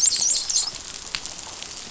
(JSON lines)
{"label": "biophony, dolphin", "recorder": "SoundTrap 500"}